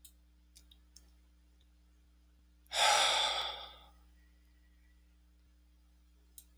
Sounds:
Sigh